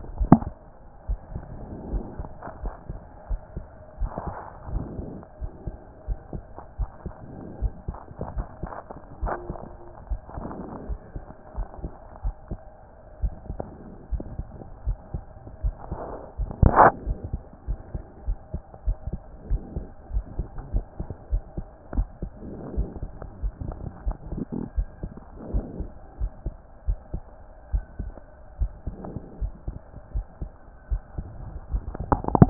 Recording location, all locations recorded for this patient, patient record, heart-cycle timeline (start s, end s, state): aortic valve (AV)
aortic valve (AV)+pulmonary valve (PV)+tricuspid valve (TV)+mitral valve (MV)
#Age: Child
#Sex: Male
#Height: 122.0 cm
#Weight: 26.1 kg
#Pregnancy status: False
#Murmur: Absent
#Murmur locations: nan
#Most audible location: nan
#Systolic murmur timing: nan
#Systolic murmur shape: nan
#Systolic murmur grading: nan
#Systolic murmur pitch: nan
#Systolic murmur quality: nan
#Diastolic murmur timing: nan
#Diastolic murmur shape: nan
#Diastolic murmur grading: nan
#Diastolic murmur pitch: nan
#Diastolic murmur quality: nan
#Outcome: Abnormal
#Campaign: 2014 screening campaign
0.00	1.08	unannotated
1.08	1.20	S1
1.20	1.34	systole
1.34	1.42	S2
1.42	1.90	diastole
1.90	2.04	S1
2.04	2.18	systole
2.18	2.28	S2
2.28	2.62	diastole
2.62	2.74	S1
2.74	2.90	systole
2.90	3.00	S2
3.00	3.30	diastole
3.30	3.40	S1
3.40	3.56	systole
3.56	3.66	S2
3.66	4.00	diastole
4.00	4.12	S1
4.12	4.26	systole
4.26	4.34	S2
4.34	4.70	diastole
4.70	4.84	S1
4.84	4.98	systole
4.98	5.08	S2
5.08	5.40	diastole
5.40	5.52	S1
5.52	5.66	systole
5.66	5.76	S2
5.76	6.08	diastole
6.08	6.18	S1
6.18	6.34	systole
6.34	6.44	S2
6.44	6.78	diastole
6.78	6.90	S1
6.90	7.04	systole
7.04	7.14	S2
7.14	7.60	diastole
7.60	7.72	S1
7.72	7.88	systole
7.88	7.96	S2
7.96	8.36	diastole
8.36	8.46	S1
8.46	8.62	systole
8.62	8.72	S2
8.72	9.22	diastole
9.22	9.34	S1
9.34	9.50	systole
9.50	9.58	S2
9.58	10.10	diastole
10.10	10.20	S1
10.20	10.38	systole
10.38	10.50	S2
10.50	10.88	diastole
10.88	10.98	S1
10.98	11.14	systole
11.14	11.24	S2
11.24	11.56	diastole
11.56	11.68	S1
11.68	11.82	systole
11.82	11.92	S2
11.92	12.24	diastole
12.24	12.34	S1
12.34	12.50	systole
12.50	12.60	S2
12.60	13.22	diastole
13.22	13.34	S1
13.34	13.50	systole
13.50	13.60	S2
13.60	14.12	diastole
14.12	14.24	S1
14.24	14.38	systole
14.38	14.48	S2
14.48	14.86	diastole
14.86	14.98	S1
14.98	15.14	systole
15.14	15.22	S2
15.22	15.64	diastole
15.64	15.74	S1
15.74	15.90	systole
15.90	16.00	S2
16.00	16.40	diastole
16.40	32.50	unannotated